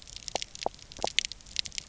{"label": "biophony, pulse", "recorder": "SoundTrap 300"}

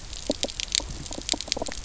{"label": "biophony, knock croak", "recorder": "SoundTrap 300"}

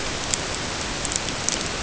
{"label": "ambient", "recorder": "HydroMoth"}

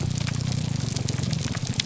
{"label": "biophony, grouper groan", "recorder": "SoundTrap 300"}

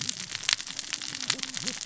{"label": "biophony, cascading saw", "recorder": "SoundTrap 600 or HydroMoth"}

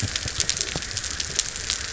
{"label": "biophony", "recorder": "SoundTrap 300"}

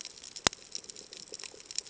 {"label": "ambient", "recorder": "HydroMoth"}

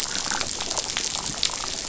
{"label": "biophony, damselfish", "recorder": "SoundTrap 500"}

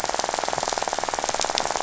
{"label": "biophony, rattle", "recorder": "SoundTrap 500"}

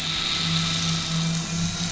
{"label": "anthrophony, boat engine", "recorder": "SoundTrap 500"}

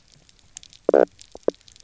{"label": "biophony, knock croak", "recorder": "SoundTrap 300"}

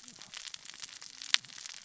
{"label": "biophony, cascading saw", "recorder": "SoundTrap 600 or HydroMoth"}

